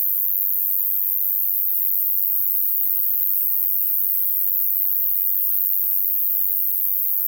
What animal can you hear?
Ruspolia nitidula, an orthopteran